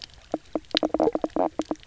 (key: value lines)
label: biophony, knock croak
recorder: SoundTrap 300